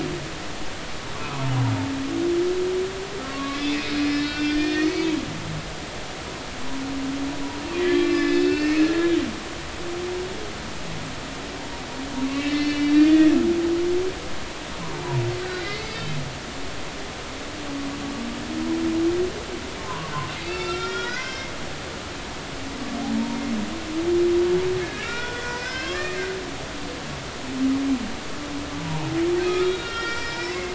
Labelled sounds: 1.2	1.5	humpback whale, 0.90 to 1.4 kHz
3.3	5.2	humpback whale, 1.0 to 5.5 kHz
7.8	9.2	humpback whale, 1.6 to 5.3 kHz
12.3	13.3	humpback whale, 1.8 to 4.5 kHz
14.8	15.1	humpback whale, 0.86 to 1.2 kHz
15.5	16.2	humpback whale, 2.5 to 4.5 kHz
19.8	21.5	humpback whale, 0.93 to 6.0 kHz
23.1	23.4	humpback whale, 0.90 to 0.99 kHz
24.8	26.2	humpback whale, 1.0 to 5.6 kHz
29.5	30.7	humpback whale, 1.2 to 5.5 kHz

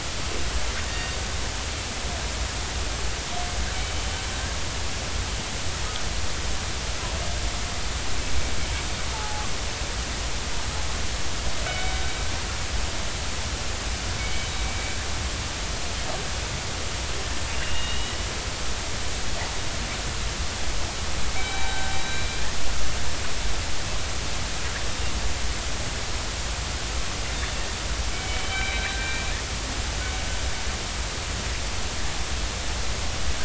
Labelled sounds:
0.9	1.2	killer whale, northern resident, 1.8 to 3.7 kHz
9.1	9.5	killer whale, northern resident, 0.80 to 0.96 kHz
11.7	11.9	killer whale, northern resident, 2.2 to 3.1 kHz
14.2	14.5	killer whale, northern resident, 2.2 to 3.1 kHz
17.5	18.1	killer whale, northern resident, 2.7 to 3.9 kHz
21.3	22.4	killer whale, northern resident, 0.80 to 4.0 kHz
28.1	29.2	killer whale, northern resident, 1.5 to 3.9 kHz

